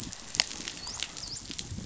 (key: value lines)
label: biophony, dolphin
recorder: SoundTrap 500